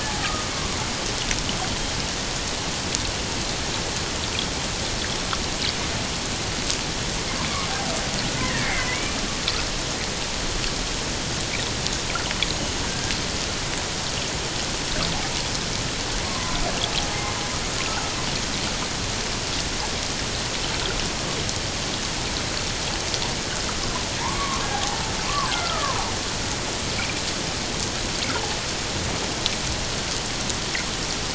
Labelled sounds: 8.2	9.0	killer whale, Bigg's (transient), 1.4 to 2.4 kHz
12.4	13.1	killer whale, Bigg's (transient), 1.5 to 6.8 kHz
16.2	16.6	killer whale, Bigg's (transient), 0.97 to 1.1 kHz
24.2	26.0	killer whale, Bigg's (transient), 0.78 to 1.7 kHz

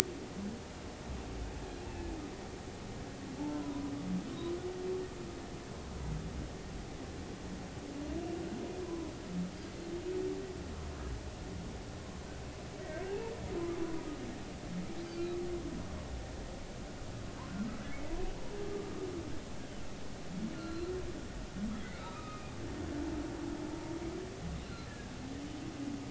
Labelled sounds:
3.5	3.9	humpback whale, 0.93 to 1.1 kHz
8.8	9.1	humpback whale, 0.96 to 1.1 kHz
13.8	14.1	humpback whale, 0.93 to 1.1 kHz
20.5	20.9	humpback whale, 1.3 to 4.2 kHz
21.8	22.5	humpback whale, 1.1 to 2.6 kHz
24.6	25.2	humpback whale, 1.5 to 4.3 kHz

